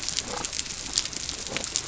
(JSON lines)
{"label": "biophony", "recorder": "SoundTrap 300"}